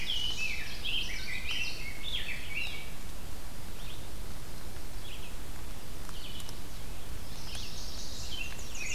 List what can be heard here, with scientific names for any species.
Setophaga pensylvanica, Pheucticus ludovicianus, Geothlypis trichas, Vireo olivaceus